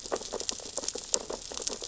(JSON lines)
{"label": "biophony, sea urchins (Echinidae)", "recorder": "SoundTrap 600 or HydroMoth"}